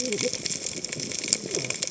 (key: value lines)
label: biophony, cascading saw
recorder: HydroMoth